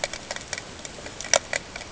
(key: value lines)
label: ambient
recorder: HydroMoth